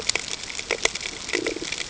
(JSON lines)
{"label": "ambient", "recorder": "HydroMoth"}